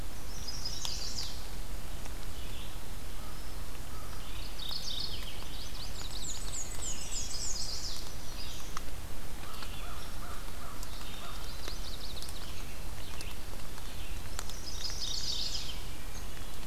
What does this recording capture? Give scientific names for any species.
Vireo olivaceus, Setophaga pensylvanica, Corvus brachyrhynchos, Geothlypis philadelphia, Mniotilta varia, Hylocichla mustelina